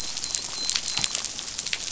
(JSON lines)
{"label": "biophony, dolphin", "recorder": "SoundTrap 500"}